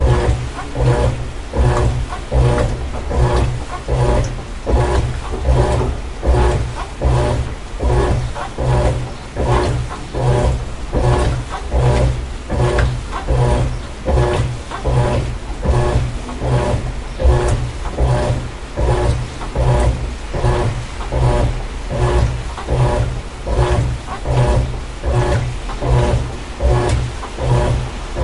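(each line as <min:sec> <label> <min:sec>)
0:00.0 An old washing machine is washing clothes loudly and continuously. 0:28.2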